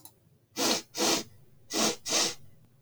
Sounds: Sniff